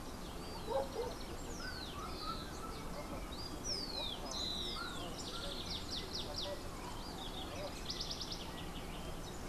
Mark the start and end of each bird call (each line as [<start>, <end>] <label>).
[0.00, 1.50] House Wren (Troglodytes aedon)
[1.10, 5.30] Rufous-collared Sparrow (Zonotrichia capensis)
[5.10, 9.40] House Wren (Troglodytes aedon)